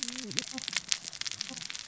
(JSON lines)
{"label": "biophony, cascading saw", "recorder": "SoundTrap 600 or HydroMoth"}